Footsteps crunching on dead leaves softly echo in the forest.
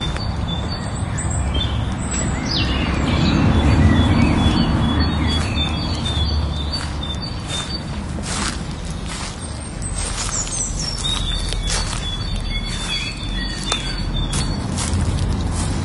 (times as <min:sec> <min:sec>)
0:05.1 0:15.8